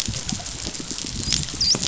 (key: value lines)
label: biophony, dolphin
recorder: SoundTrap 500